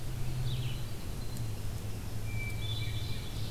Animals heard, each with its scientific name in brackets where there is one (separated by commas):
Red-eyed Vireo (Vireo olivaceus), Hermit Thrush (Catharus guttatus), Ovenbird (Seiurus aurocapilla)